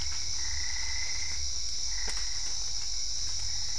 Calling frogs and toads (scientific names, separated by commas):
Boana albopunctata